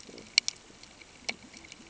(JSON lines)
{"label": "ambient", "recorder": "HydroMoth"}